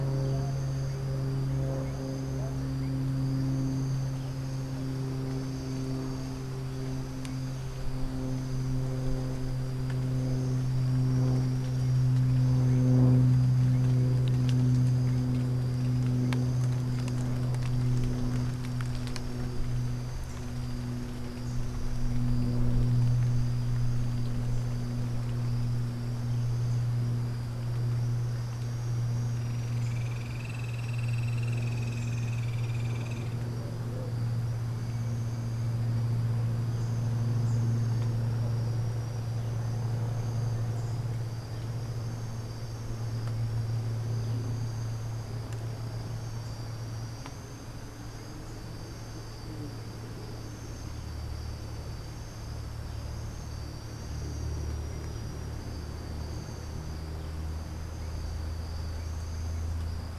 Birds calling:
Hoffmann's Woodpecker (Melanerpes hoffmannii)

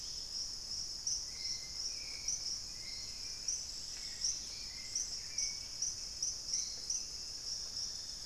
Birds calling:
Hauxwell's Thrush (Turdus hauxwelli), Dusky-capped Greenlet (Pachysylvia hypoxantha), Chestnut-winged Foliage-gleaner (Dendroma erythroptera)

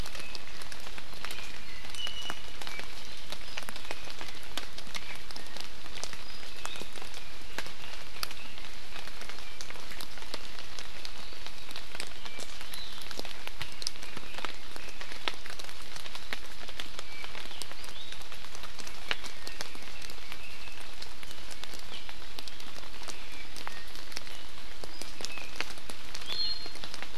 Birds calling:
Red-billed Leiothrix (Leiothrix lutea), Iiwi (Drepanis coccinea)

